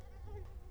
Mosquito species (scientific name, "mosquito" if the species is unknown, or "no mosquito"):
Culex quinquefasciatus